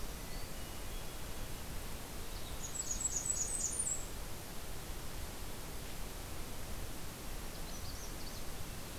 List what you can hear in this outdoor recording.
Hermit Thrush, Blackburnian Warbler, Magnolia Warbler